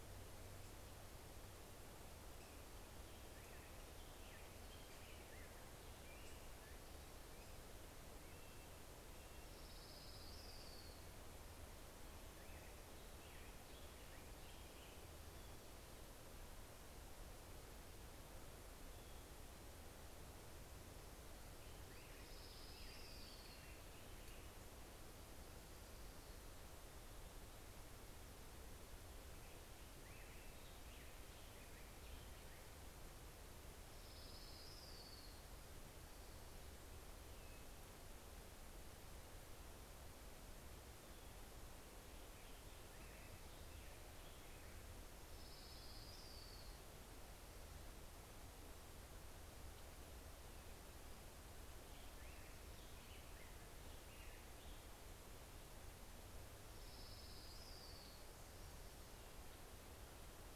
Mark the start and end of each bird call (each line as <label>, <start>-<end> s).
Black-headed Grosbeak (Pheucticus melanocephalus), 2.4-7.3 s
Red-breasted Nuthatch (Sitta canadensis), 6.9-10.6 s
Orange-crowned Warbler (Leiothlypis celata), 8.8-11.9 s
Black-headed Grosbeak (Pheucticus melanocephalus), 10.2-16.8 s
Black-headed Grosbeak (Pheucticus melanocephalus), 20.0-26.0 s
Orange-crowned Warbler (Leiothlypis celata), 20.2-24.9 s
Black-headed Grosbeak (Pheucticus melanocephalus), 28.2-33.4 s
Orange-crowned Warbler (Leiothlypis celata), 33.0-37.0 s
Black-headed Grosbeak (Pheucticus melanocephalus), 40.8-46.1 s
Orange-crowned Warbler (Leiothlypis celata), 44.5-48.0 s
Black-headed Grosbeak (Pheucticus melanocephalus), 50.6-55.2 s
Orange-crowned Warbler (Leiothlypis celata), 55.7-58.8 s